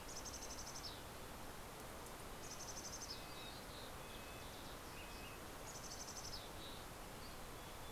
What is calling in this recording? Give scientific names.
Poecile gambeli, Pipilo chlorurus, Empidonax oberholseri